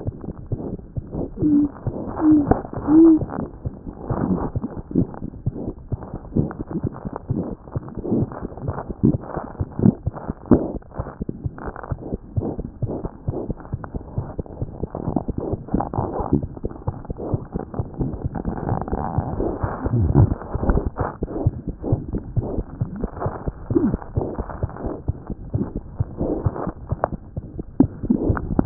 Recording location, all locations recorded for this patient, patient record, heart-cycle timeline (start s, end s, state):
mitral valve (MV)
aortic valve (AV)+pulmonary valve (PV)+tricuspid valve (TV)+mitral valve (MV)
#Age: Infant
#Sex: Female
#Height: 64.0 cm
#Weight: 6.0 kg
#Pregnancy status: False
#Murmur: Present
#Murmur locations: aortic valve (AV)+mitral valve (MV)+pulmonary valve (PV)+tricuspid valve (TV)
#Most audible location: tricuspid valve (TV)
#Systolic murmur timing: Holosystolic
#Systolic murmur shape: Plateau
#Systolic murmur grading: II/VI
#Systolic murmur pitch: Medium
#Systolic murmur quality: Blowing
#Diastolic murmur timing: nan
#Diastolic murmur shape: nan
#Diastolic murmur grading: nan
#Diastolic murmur pitch: nan
#Diastolic murmur quality: nan
#Outcome: Abnormal
#Campaign: 2015 screening campaign
0.00	12.67	unannotated
12.67	12.80	diastole
12.80	12.87	S1
12.87	13.01	systole
13.01	13.10	S2
13.10	13.27	diastole
13.27	13.34	S1
13.34	13.48	systole
13.48	13.56	S2
13.56	13.72	diastole
13.72	13.78	S1
13.78	13.94	systole
13.94	14.00	S2
14.00	14.15	diastole
14.15	14.22	S1
14.22	14.36	systole
14.36	14.43	S2
14.43	14.58	diastole
14.58	14.65	S1
14.65	14.79	systole
14.79	14.87	S2
14.87	15.24	diastole
15.24	15.34	S1
15.34	15.50	systole
15.50	15.58	S2
15.58	15.72	diastole
15.72	15.74	diastole
15.74	28.66	unannotated